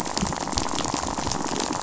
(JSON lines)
{"label": "biophony, rattle", "recorder": "SoundTrap 500"}